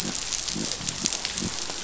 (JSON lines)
{"label": "biophony", "recorder": "SoundTrap 500"}